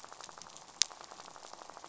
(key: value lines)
label: biophony, rattle
recorder: SoundTrap 500